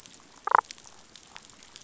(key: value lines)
label: biophony, damselfish
recorder: SoundTrap 500